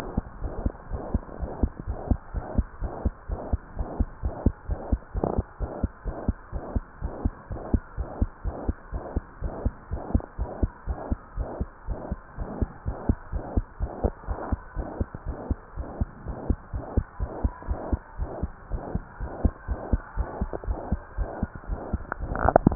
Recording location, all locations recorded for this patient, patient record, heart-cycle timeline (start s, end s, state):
tricuspid valve (TV)
aortic valve (AV)+pulmonary valve (PV)+tricuspid valve (TV)+mitral valve (MV)
#Age: Child
#Sex: Female
#Height: 88.0 cm
#Weight: 12.5 kg
#Pregnancy status: False
#Murmur: Present
#Murmur locations: aortic valve (AV)+mitral valve (MV)+pulmonary valve (PV)+tricuspid valve (TV)
#Most audible location: tricuspid valve (TV)
#Systolic murmur timing: Holosystolic
#Systolic murmur shape: Plateau
#Systolic murmur grading: II/VI
#Systolic murmur pitch: Low
#Systolic murmur quality: Blowing
#Diastolic murmur timing: nan
#Diastolic murmur shape: nan
#Diastolic murmur grading: nan
#Diastolic murmur pitch: nan
#Diastolic murmur quality: nan
#Outcome: Abnormal
#Campaign: 2015 screening campaign
0.00	0.13	unannotated
0.13	0.26	S2
0.26	0.42	diastole
0.42	0.54	S1
0.54	0.62	systole
0.62	0.74	S2
0.74	0.90	diastole
0.90	1.02	S1
1.02	1.12	systole
1.12	1.24	S2
1.24	1.40	diastole
1.40	1.50	S1
1.50	1.58	systole
1.58	1.72	S2
1.72	1.88	diastole
1.88	1.98	S1
1.98	2.06	systole
2.06	2.18	S2
2.18	2.34	diastole
2.34	2.44	S1
2.44	2.56	systole
2.56	2.66	S2
2.66	2.82	diastole
2.82	2.94	S1
2.94	3.02	systole
3.02	3.14	S2
3.14	3.30	diastole
3.30	3.42	S1
3.42	3.50	systole
3.50	3.62	S2
3.62	3.78	diastole
3.78	3.88	S1
3.88	3.98	systole
3.98	4.08	S2
4.08	4.24	diastole
4.24	4.34	S1
4.34	4.42	systole
4.42	4.54	S2
4.54	4.66	diastole
4.66	4.80	S1
4.80	4.88	systole
4.88	5.02	S2
5.02	5.15	diastole
5.15	5.24	S1
5.24	5.36	systole
5.36	5.48	S2
5.48	5.62	diastole
5.62	5.70	S1
5.70	5.80	systole
5.80	5.90	S2
5.90	6.06	diastole
6.06	6.18	S1
6.18	6.26	systole
6.26	6.36	S2
6.36	6.54	diastole
6.54	6.62	S1
6.62	6.74	systole
6.74	6.86	S2
6.86	7.04	diastole
7.04	7.14	S1
7.14	7.22	systole
7.22	7.34	S2
7.34	7.52	diastole
7.52	7.62	S1
7.62	7.70	systole
7.70	7.82	S2
7.82	7.98	diastole
7.98	8.08	S1
8.08	8.20	systole
8.20	8.30	S2
8.30	8.46	diastole
8.46	8.58	S1
8.58	8.66	systole
8.66	8.78	S2
8.78	8.94	diastole
8.94	9.02	S1
9.02	9.12	systole
9.12	9.26	S2
9.26	9.42	diastole
9.42	9.54	S1
9.54	9.64	systole
9.64	9.74	S2
9.74	9.92	diastole
9.92	10.02	S1
10.02	10.12	systole
10.12	10.24	S2
10.24	10.40	diastole
10.40	10.50	S1
10.50	10.60	systole
10.60	10.72	S2
10.72	10.88	diastole
10.88	10.98	S1
10.98	11.08	systole
11.08	11.18	S2
11.18	11.36	diastole
11.36	11.48	S1
11.48	11.58	systole
11.58	11.68	S2
11.68	11.88	diastole
11.88	11.98	S1
11.98	12.10	systole
12.10	12.18	S2
12.18	12.38	diastole
12.38	12.48	S1
12.48	12.60	systole
12.60	12.70	S2
12.70	12.86	diastole
12.86	12.96	S1
12.96	13.08	systole
13.08	13.18	S2
13.18	13.32	diastole
13.32	13.44	S1
13.44	13.54	systole
13.54	13.64	S2
13.64	13.80	diastole
13.80	13.92	S1
13.92	14.02	systole
14.02	14.12	S2
14.12	14.28	diastole
14.28	14.38	S1
14.38	14.50	systole
14.50	14.62	S2
14.62	14.76	diastole
14.76	14.86	S1
14.86	14.96	systole
14.96	15.08	S2
15.08	15.26	diastole
15.26	15.38	S1
15.38	15.50	systole
15.50	15.60	S2
15.60	15.78	diastole
15.78	15.88	S1
15.88	16.00	systole
16.00	16.10	S2
16.10	16.26	diastole
16.26	16.38	S1
16.38	16.48	systole
16.48	16.60	S2
16.60	16.74	diastole
16.74	16.84	S1
16.84	16.92	systole
16.92	17.04	S2
17.04	17.20	diastole
17.20	17.30	S1
17.30	17.42	systole
17.42	17.54	S2
17.54	17.68	diastole
17.68	17.80	S1
17.80	17.88	systole
17.88	18.00	S2
18.00	18.18	diastole
18.18	18.30	S1
18.30	18.42	systole
18.42	18.52	S2
18.52	18.72	diastole
18.72	18.84	S1
18.84	18.94	systole
18.94	19.04	S2
19.04	19.20	diastole
19.20	19.30	S1
19.30	19.40	systole
19.40	19.52	S2
19.52	19.68	diastole
19.68	19.80	S1
19.80	19.88	systole
19.88	20.04	S2
20.04	20.18	diastole
20.18	22.75	unannotated